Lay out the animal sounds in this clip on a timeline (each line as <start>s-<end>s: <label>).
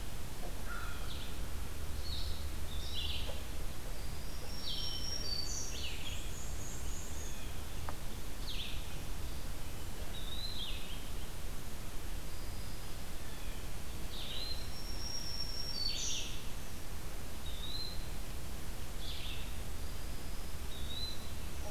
0.0s-1.3s: Blue Jay (Cyanocitta cristata)
2.0s-21.7s: Red-eyed Vireo (Vireo olivaceus)
2.7s-3.4s: Eastern Wood-Pewee (Contopus virens)
4.1s-6.0s: Black-throated Green Warbler (Setophaga virens)
5.9s-7.5s: Black-and-white Warbler (Mniotilta varia)
10.0s-11.2s: Eastern Wood-Pewee (Contopus virens)
14.4s-16.6s: Black-throated Green Warbler (Setophaga virens)
17.3s-18.1s: Eastern Wood-Pewee (Contopus virens)
20.7s-21.4s: Eastern Wood-Pewee (Contopus virens)